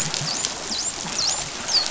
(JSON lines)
{"label": "biophony, dolphin", "recorder": "SoundTrap 500"}